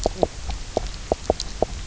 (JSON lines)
{"label": "biophony, knock croak", "recorder": "SoundTrap 300"}